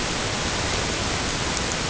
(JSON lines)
{"label": "ambient", "recorder": "HydroMoth"}